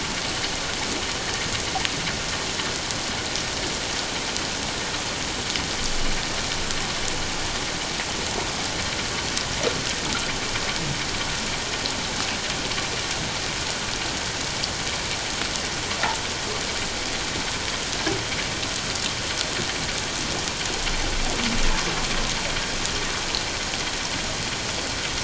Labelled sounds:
1.2	1.5	vessel noise, 1.8 to 2.0 kHz

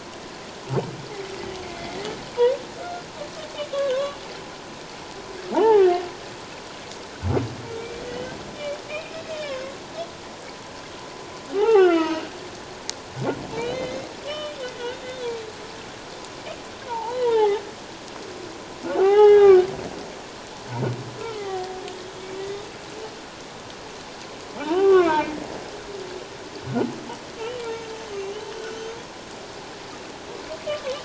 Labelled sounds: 1.6	2.0	humpback whale, 2.0 to 2.2 kHz
3.7	4.2	humpback whale, 0.97 to 1.7 kHz
5.5	6.0	humpback whale, 0.78 to 2.2 kHz
7.8	8.4	humpback whale, 1.9 to 3.1 kHz
8.9	9.8	humpback whale, 1.0 to 3.2 kHz
11.5	12.3	humpback whale, 0.78 to 3.2 kHz
13.6	14.5	humpback whale, 2.0 to 3.8 kHz
16.8	17.6	humpback whale, 0.78 to 3.4 kHz
18.8	19.7	humpback whale, 0.78 to 5.5 kHz
21.2	22.7	humpback whale, 0.78 to 3.7 kHz
24.6	25.3	humpback whale, 0.81 to 3.2 kHz
28.5	29.0	humpback whale, 1.3 to 6.4 kHz

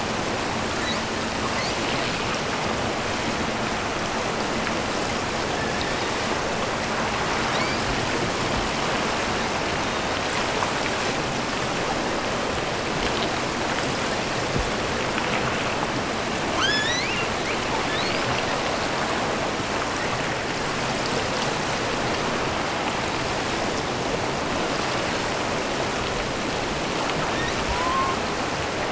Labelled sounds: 7.4	7.9	killer whale, offshore, 1.4 to 5.3 kHz
16.4	17.4	killer whale, offshore, 0.75 to 8.0 kHz
17.8	18.5	killer whale, offshore, 1.6 to 5.7 kHz
27.1	28.2	killer whale, offshore, 0.68 to 4.4 kHz

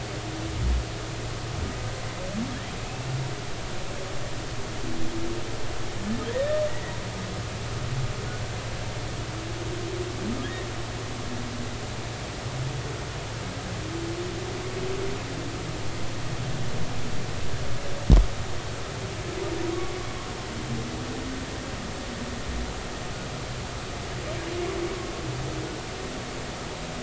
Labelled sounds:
6.3	6.9	humpback whale, 1.7 to 2.0 kHz

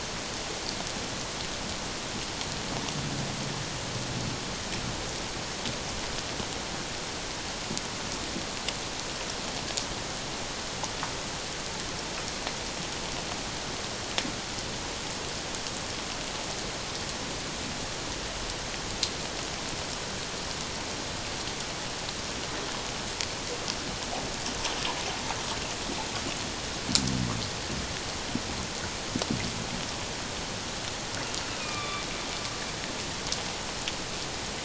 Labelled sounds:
31.5	32.0	killer whale, northern resident, A clan, AA subclan, call N04, 1.1 to 3.6 kHz

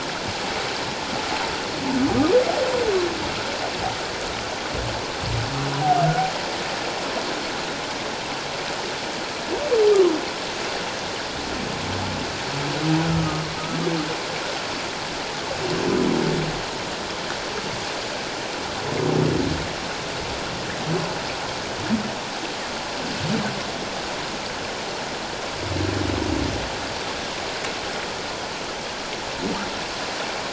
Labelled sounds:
13.0	13.4	humpback whale, 1.2 to 1.5 kHz

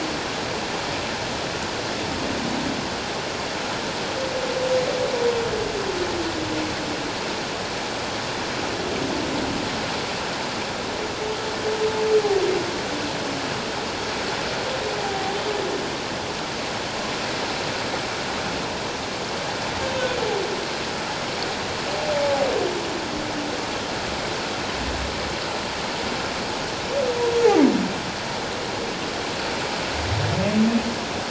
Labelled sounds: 15.0	15.3	humpback whale, 0.78 to 0.84 kHz

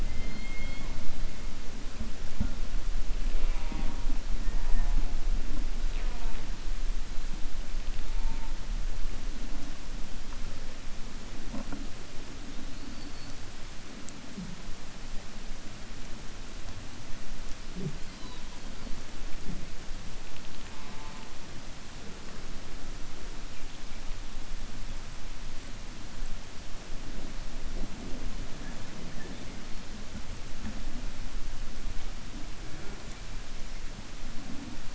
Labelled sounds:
0.0	0.9	killer whale, 1.4 to 4.4 kHz

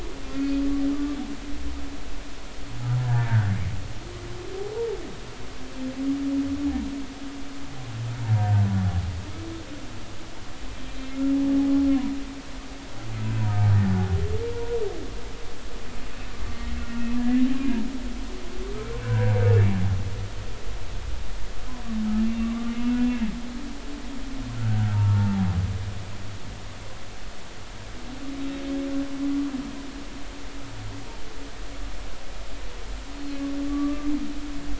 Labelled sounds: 0.3	1.2	humpback whale, 1.1 to 2.6 kHz
3.0	3.5	humpback whale, 1.4 to 1.9 kHz
16.8	17.4	humpback whale, 1.3 to 1.8 kHz
19.0	19.4	humpback whale, 0.93 to 1.7 kHz
22.2	22.8	humpback whale, 0.99 to 2.8 kHz
24.9	25.5	humpback whale, 0.80 to 0.96 kHz
28.3	28.6	humpback whale, 3.7 to 3.9 kHz
33.1	34.1	humpback whale, 1.1 to 4.3 kHz

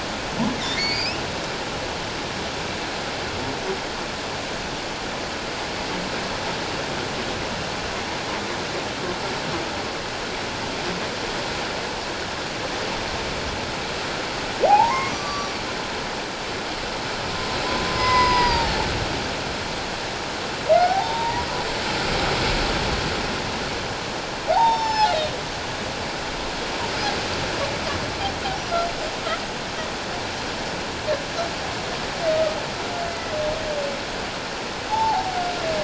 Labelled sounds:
0.7	1.2	humpback whale, 1.8 to 5.6 kHz
14.6	15.6	humpback whale, 0.78 to 6.1 kHz
17.9	18.8	humpback whale, 0.81 to 5.1 kHz
20.8	21.4	humpback whale, 0.78 to 3.8 kHz
24.5	25.1	humpback whale, 0.78 to 7.2 kHz
33.1	33.4	humpback whale, 1.9 to 2.1 kHz
34.9	35.4	humpback whale, 0.78 to 0.97 kHz

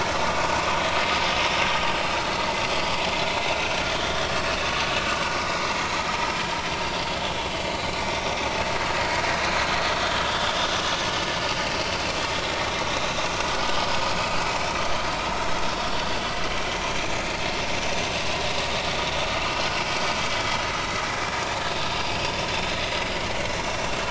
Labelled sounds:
2.3	2.6	vessel noise, 2.0 to 2.1 kHz
3.2	3.4	vessel noise, 3.9 to 4.2 kHz
6.8	7.1	vessel noise, 4.7 to 4.9 kHz
10.2	10.5	vessel noise, 3.2 to 3.6 kHz
11.8	12.0	vessel noise, 4.4 to 4.6 kHz
12.9	13.2	vessel noise, 3.6 to 4.1 kHz
16.7	17.1	vessel noise, 2.9 to 3.1 kHz
20.3	20.6	vessel noise, 3.2 to 3.4 kHz
22.5	22.8	vessel noise, 3.5 to 3.7 kHz

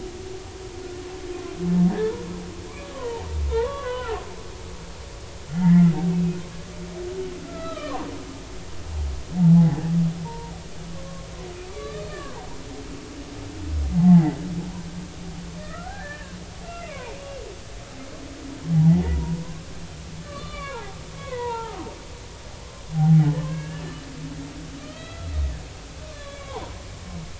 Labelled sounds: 2.9	4.2	humpback whale, 0.80 to 1.6 kHz
5.5	6.4	humpback whale, 1.9 to 2.7 kHz
7.4	8.1	humpback whale, 0.93 to 4.0 kHz
9.4	10.5	humpback whale, 0.80 to 2.1 kHz
11.0	12.5	humpback whale, 0.80 to 1.9 kHz
14.0	14.4	humpback whale, 0.80 to 2.1 kHz
15.6	16.4	humpback whale, 1.2 to 1.9 kHz
16.7	17.1	humpback whale, 0.83 to 2.8 kHz
18.7	19.0	humpback whale, 0.80 to 0.99 kHz
20.3	21.9	humpback whale, 0.80 to 4.2 kHz
22.9	23.8	humpback whale, 0.80 to 2.9 kHz
24.4	25.3	humpback whale, 1.2 to 4.0 kHz
26.1	26.6	humpback whale, 0.80 to 4.2 kHz

